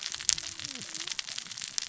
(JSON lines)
{"label": "biophony, cascading saw", "recorder": "SoundTrap 600 or HydroMoth"}